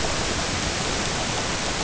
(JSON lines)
{"label": "ambient", "recorder": "HydroMoth"}